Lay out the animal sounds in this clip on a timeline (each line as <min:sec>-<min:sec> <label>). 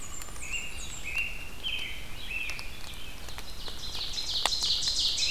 0:00.0-0:01.3 Blackburnian Warbler (Setophaga fusca)
0:00.0-0:05.3 Red-eyed Vireo (Vireo olivaceus)
0:00.3-0:03.0 American Robin (Turdus migratorius)
0:03.3-0:05.3 Ovenbird (Seiurus aurocapilla)